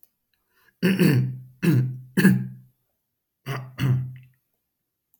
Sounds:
Throat clearing